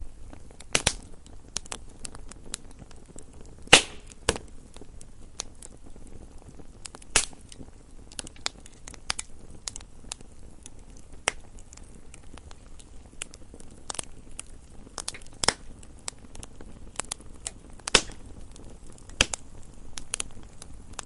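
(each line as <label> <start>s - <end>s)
Fire crackling while burning. 0.0s - 21.0s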